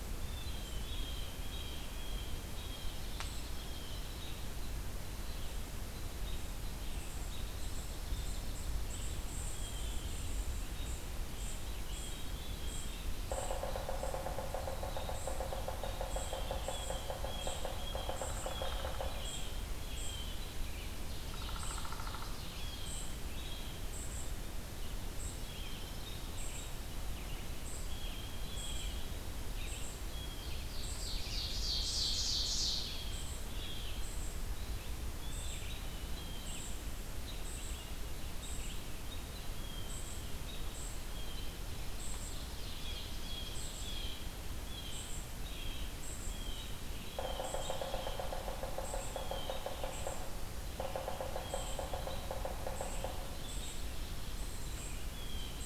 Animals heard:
Blue Jay (Cyanocitta cristata), Ovenbird (Seiurus aurocapilla), Dark-eyed Junco (Junco hyemalis), Red-eyed Vireo (Vireo olivaceus), American Robin (Turdus migratorius), Downy Woodpecker (Dryobates pubescens), unidentified call, Yellow-bellied Sapsucker (Sphyrapicus varius)

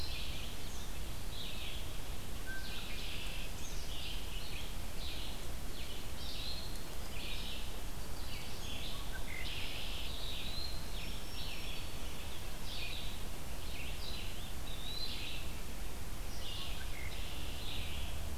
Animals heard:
Black-throated Green Warbler (Setophaga virens), Red-winged Blackbird (Agelaius phoeniceus), Eastern Wood-Pewee (Contopus virens), Red-eyed Vireo (Vireo olivaceus)

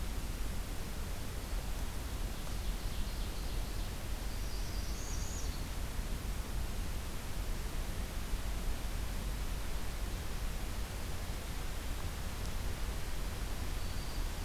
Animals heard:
Black-throated Green Warbler (Setophaga virens), Northern Parula (Setophaga americana), Ovenbird (Seiurus aurocapilla)

